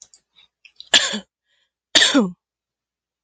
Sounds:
Cough